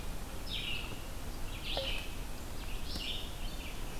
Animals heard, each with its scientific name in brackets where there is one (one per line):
Red-eyed Vireo (Vireo olivaceus)